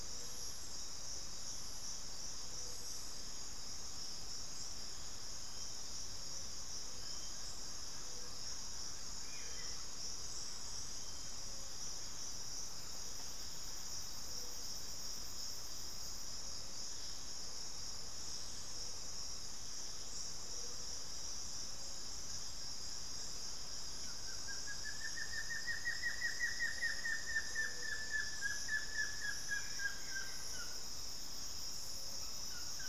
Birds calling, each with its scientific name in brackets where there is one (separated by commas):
Buff-throated Woodcreeper (Xiphorhynchus guttatus), Thrush-like Wren (Campylorhynchus turdinus), Plain-winged Antshrike (Thamnophilus schistaceus)